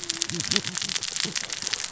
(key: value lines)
label: biophony, cascading saw
recorder: SoundTrap 600 or HydroMoth